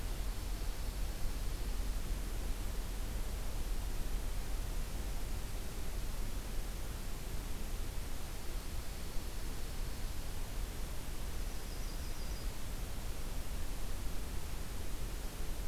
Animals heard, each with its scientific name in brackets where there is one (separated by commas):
Dark-eyed Junco (Junco hyemalis), Yellow-rumped Warbler (Setophaga coronata)